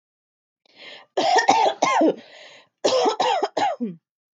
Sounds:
Cough